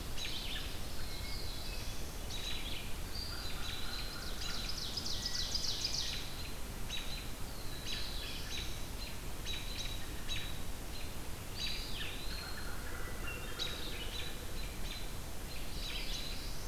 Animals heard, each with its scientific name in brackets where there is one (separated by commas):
Ovenbird (Seiurus aurocapilla), Black-throated Blue Warbler (Setophaga caerulescens), Eastern Wood-Pewee (Contopus virens), American Robin (Turdus migratorius), American Crow (Corvus brachyrhynchos), Hermit Thrush (Catharus guttatus)